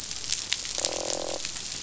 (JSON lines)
{"label": "biophony, croak", "recorder": "SoundTrap 500"}